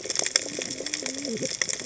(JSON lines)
{"label": "biophony, cascading saw", "recorder": "HydroMoth"}